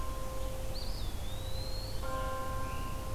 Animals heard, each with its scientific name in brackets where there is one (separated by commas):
Eastern Wood-Pewee (Contopus virens), Scarlet Tanager (Piranga olivacea)